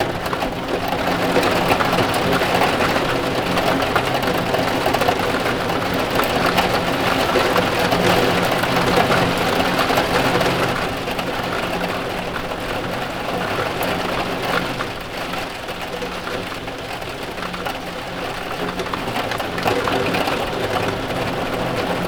Are people talking?
no